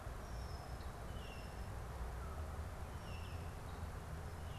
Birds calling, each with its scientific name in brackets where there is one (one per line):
Red-winged Blackbird (Agelaius phoeniceus)